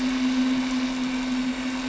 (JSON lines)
{"label": "anthrophony, boat engine", "recorder": "SoundTrap 300"}